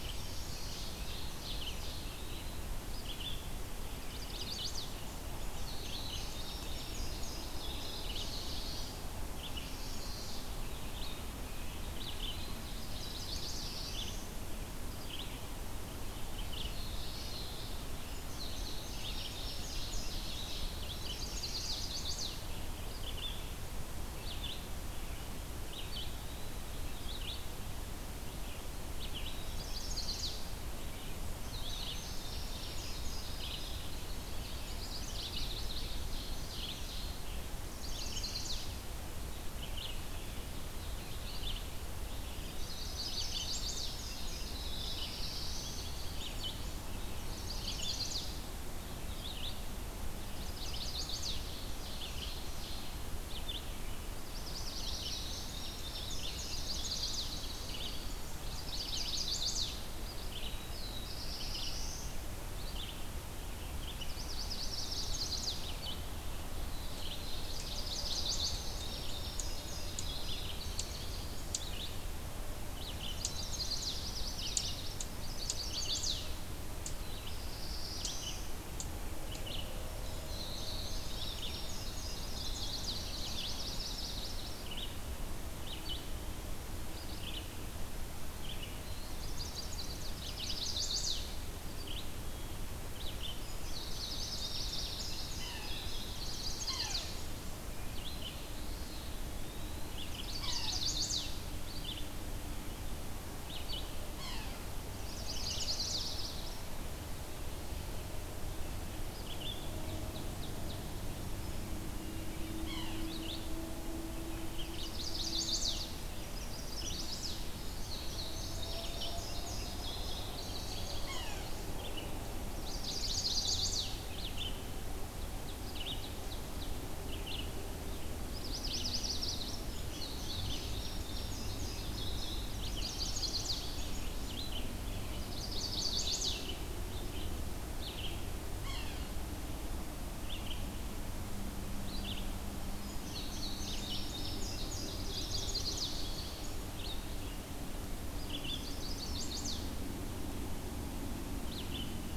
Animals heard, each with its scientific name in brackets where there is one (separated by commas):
Ovenbird (Seiurus aurocapilla), Red-eyed Vireo (Vireo olivaceus), Yellow-rumped Warbler (Setophaga coronata), Chestnut-sided Warbler (Setophaga pensylvanica), Eastern Wood-Pewee (Contopus virens), Black-throated Blue Warbler (Setophaga caerulescens), Indigo Bunting (Passerina cyanea), Yellow-bellied Sapsucker (Sphyrapicus varius), Common Yellowthroat (Geothlypis trichas), Eastern Chipmunk (Tamias striatus)